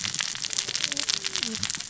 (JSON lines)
{"label": "biophony, cascading saw", "recorder": "SoundTrap 600 or HydroMoth"}